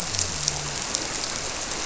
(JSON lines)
{"label": "biophony", "recorder": "SoundTrap 300"}